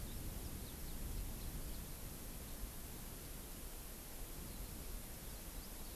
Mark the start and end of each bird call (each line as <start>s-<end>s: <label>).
0.0s-1.9s: Warbling White-eye (Zosterops japonicus)